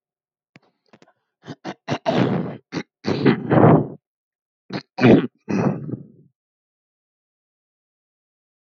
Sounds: Throat clearing